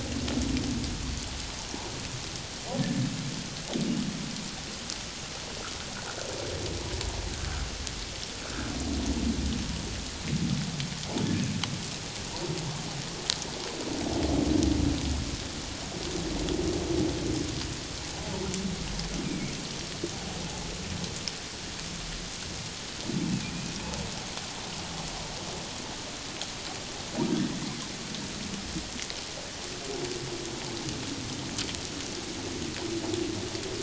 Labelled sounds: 2.8	3.1	humpback whale, 1.7 to 1.8 kHz
7.4	7.7	humpback whale, 1.2 to 1.6 kHz
19.2	19.5	humpback whale, 2.1 to 2.5 kHz
23.2	23.7	humpback whale, 2.3 to 2.7 kHz

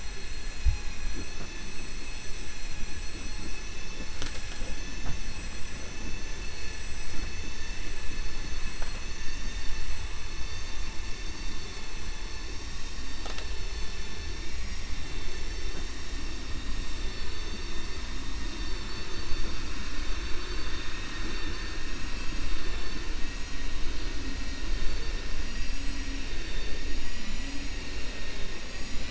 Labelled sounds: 26.3	26.9	vessel noise, 1.8 to 5.5 kHz

